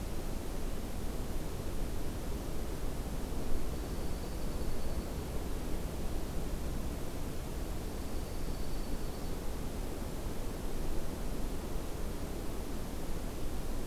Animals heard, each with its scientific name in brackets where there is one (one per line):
Dark-eyed Junco (Junco hyemalis)